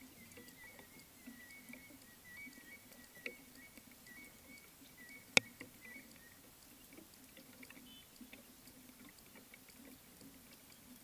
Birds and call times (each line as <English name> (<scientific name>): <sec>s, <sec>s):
African Gray Hornbill (Lophoceros nasutus): 2.4s